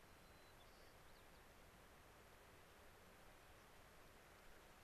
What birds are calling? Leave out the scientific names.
White-crowned Sparrow